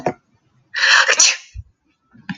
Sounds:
Sneeze